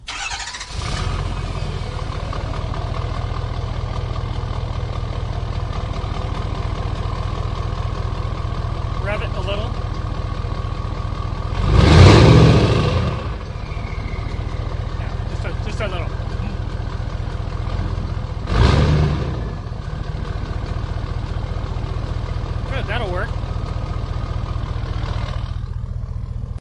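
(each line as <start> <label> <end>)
0.0 A motor starting to run. 11.5
8.8 Someone is speaking. 10.3
11.6 A motor makes a loud noise as it starts working. 13.4
13.4 Motor running. 20.6
15.3 An adult male is speaking. 16.6
20.6 An engine is winding down. 26.6
22.6 A man is talking outdoors. 23.8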